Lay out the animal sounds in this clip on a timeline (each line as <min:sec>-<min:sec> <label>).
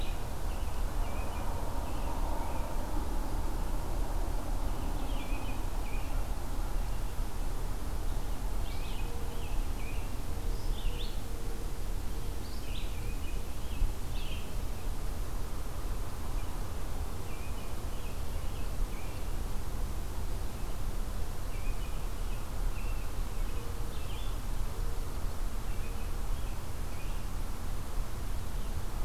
0:00.0-0:02.8 American Robin (Turdus migratorius)
0:04.5-0:06.2 American Robin (Turdus migratorius)
0:08.6-0:10.3 American Robin (Turdus migratorius)
0:08.6-0:14.6 Red-eyed Vireo (Vireo olivaceus)
0:12.5-0:13.9 American Robin (Turdus migratorius)
0:17.1-0:19.4 American Robin (Turdus migratorius)
0:21.4-0:23.7 American Robin (Turdus migratorius)
0:23.8-0:24.4 Red-eyed Vireo (Vireo olivaceus)
0:25.6-0:27.3 American Robin (Turdus migratorius)